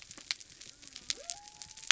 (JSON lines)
{"label": "biophony", "recorder": "SoundTrap 300"}